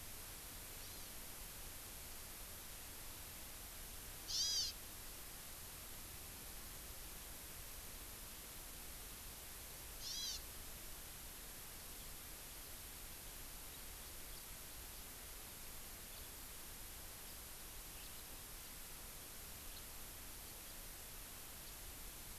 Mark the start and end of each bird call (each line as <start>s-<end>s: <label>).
0.8s-1.1s: Hawaii Amakihi (Chlorodrepanis virens)
4.2s-4.7s: Hawaii Amakihi (Chlorodrepanis virens)
9.9s-10.4s: Hawaii Amakihi (Chlorodrepanis virens)